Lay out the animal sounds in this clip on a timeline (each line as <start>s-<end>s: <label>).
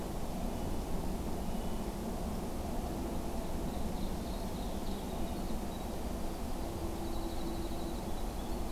0.0s-1.9s: Red-breasted Nuthatch (Sitta canadensis)
3.3s-5.0s: Ovenbird (Seiurus aurocapilla)
4.9s-8.7s: Winter Wren (Troglodytes hiemalis)